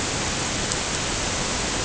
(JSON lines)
{"label": "ambient", "recorder": "HydroMoth"}